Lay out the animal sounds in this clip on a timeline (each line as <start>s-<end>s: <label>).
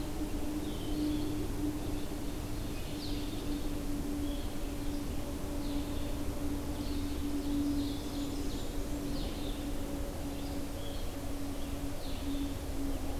0.0s-13.2s: Blue-headed Vireo (Vireo solitarius)
0.0s-13.2s: Red-eyed Vireo (Vireo olivaceus)
1.7s-3.9s: Ovenbird (Seiurus aurocapilla)
7.3s-8.9s: Ovenbird (Seiurus aurocapilla)
7.4s-9.1s: Blackburnian Warbler (Setophaga fusca)